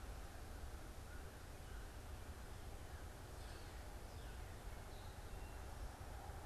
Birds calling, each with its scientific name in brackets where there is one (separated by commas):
American Crow (Corvus brachyrhynchos)